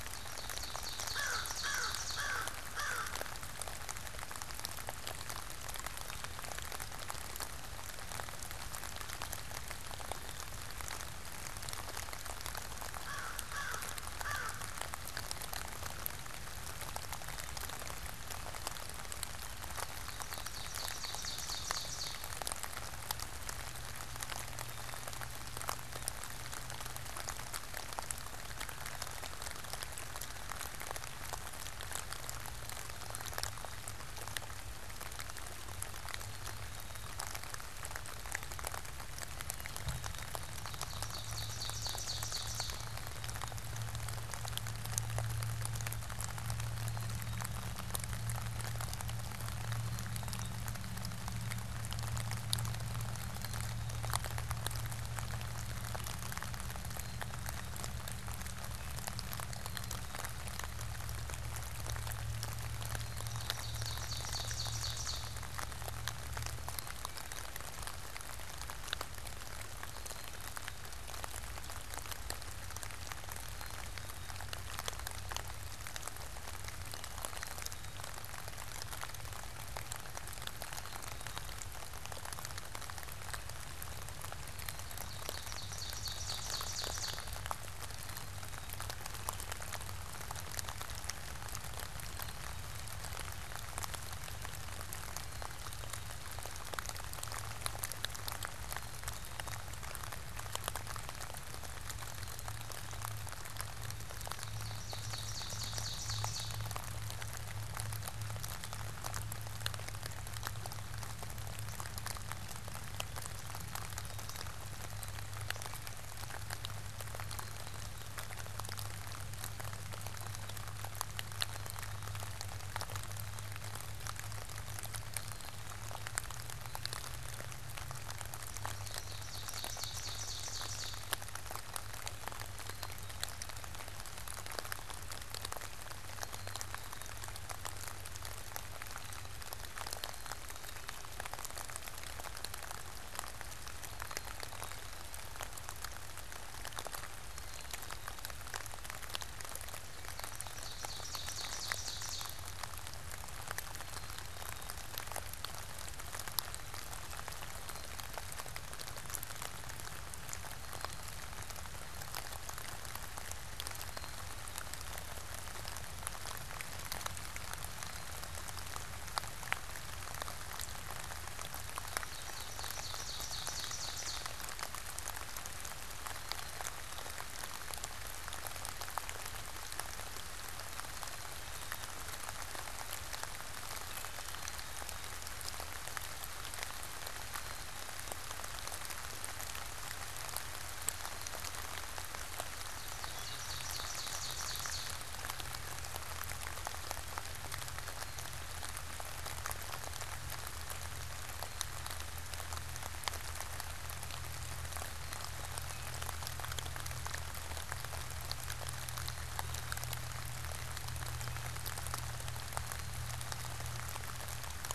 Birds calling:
Black-capped Chickadee (Poecile atricapillus)
Ovenbird (Seiurus aurocapilla)
American Crow (Corvus brachyrhynchos)

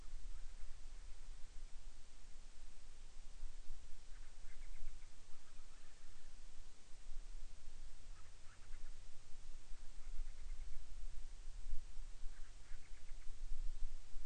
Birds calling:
Band-rumped Storm-Petrel (Hydrobates castro)

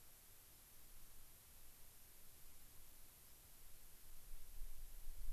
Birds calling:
White-crowned Sparrow (Zonotrichia leucophrys)

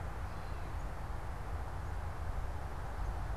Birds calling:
Gray Catbird (Dumetella carolinensis)

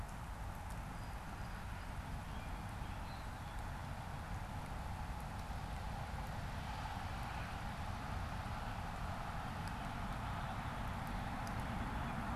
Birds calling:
Blue Jay (Cyanocitta cristata)
Song Sparrow (Melospiza melodia)

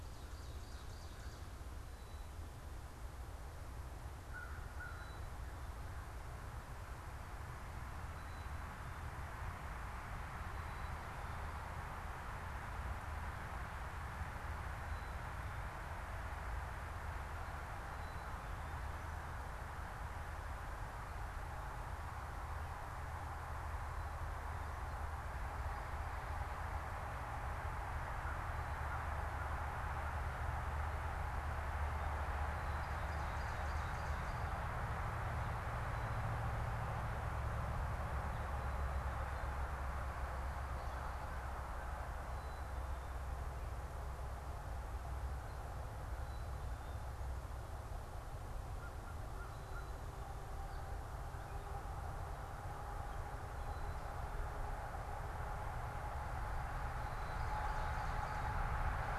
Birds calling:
American Crow (Corvus brachyrhynchos)
Black-capped Chickadee (Poecile atricapillus)
Ovenbird (Seiurus aurocapilla)

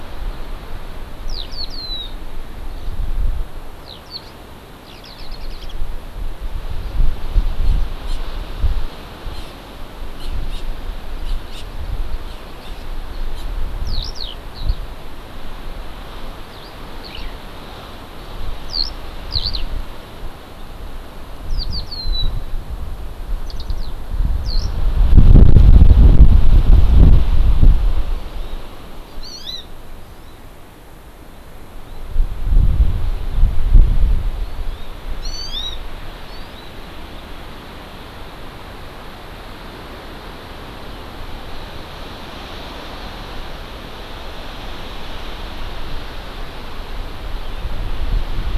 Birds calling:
Hawaii Amakihi (Chlorodrepanis virens)
Eurasian Skylark (Alauda arvensis)

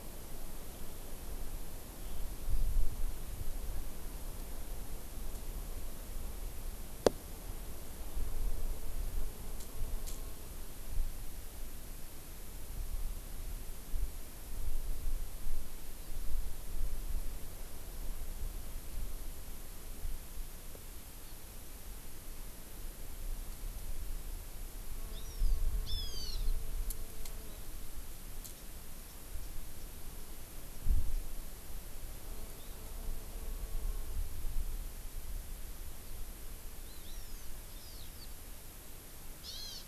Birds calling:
Hawaii Amakihi (Chlorodrepanis virens)
Hawaiian Hawk (Buteo solitarius)
Japanese Bush Warbler (Horornis diphone)
Eurasian Skylark (Alauda arvensis)

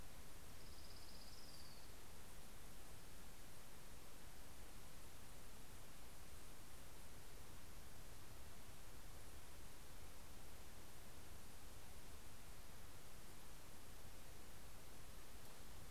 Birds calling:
Orange-crowned Warbler (Leiothlypis celata)

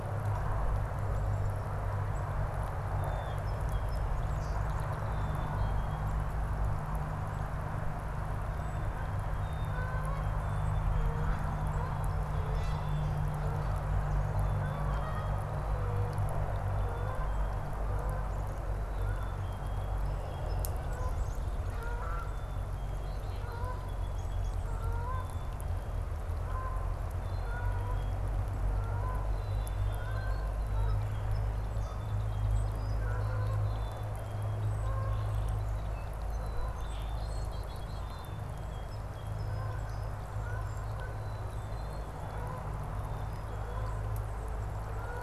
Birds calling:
Red-bellied Woodpecker (Melanerpes carolinus)
Canada Goose (Branta canadensis)
Song Sparrow (Melospiza melodia)
Black-capped Chickadee (Poecile atricapillus)
unidentified bird
Rusty Blackbird (Euphagus carolinus)

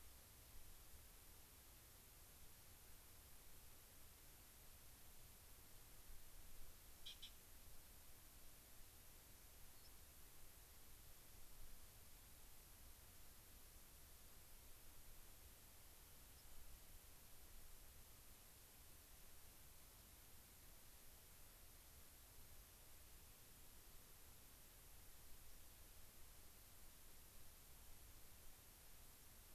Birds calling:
Gray-crowned Rosy-Finch (Leucosticte tephrocotis)

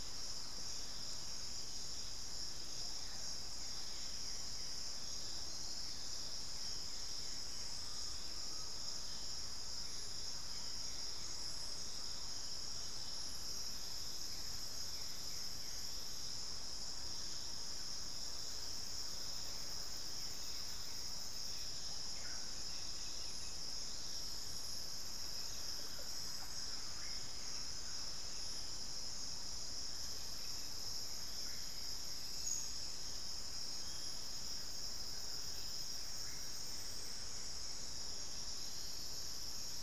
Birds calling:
Russet-backed Oropendola (Psarocolius angustifrons)
unidentified bird
Undulated Tinamou (Crypturellus undulatus)

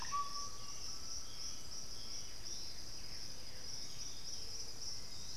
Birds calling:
Undulated Tinamou (Crypturellus undulatus)
unidentified bird
Blue-gray Saltator (Saltator coerulescens)
Piratic Flycatcher (Legatus leucophaius)
Russet-backed Oropendola (Psarocolius angustifrons)

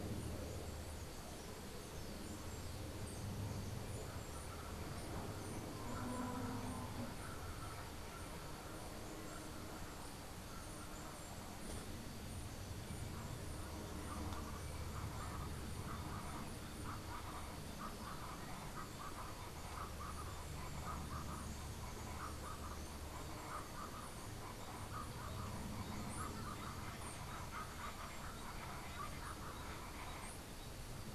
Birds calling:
Colombian Chachalaca (Ortalis columbiana)

